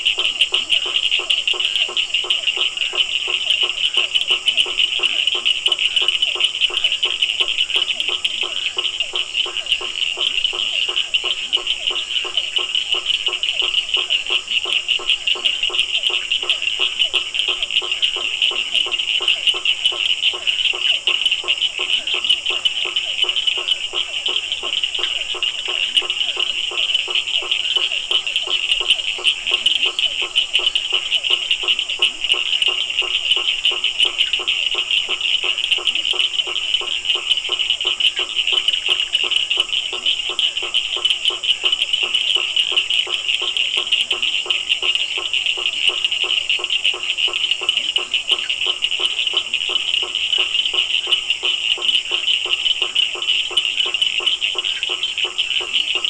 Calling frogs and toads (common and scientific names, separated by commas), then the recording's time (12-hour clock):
blacksmith tree frog (Boana faber), Physalaemus cuvieri, Cochran's lime tree frog (Sphaenorhynchus surdus), Leptodactylus latrans
7:15pm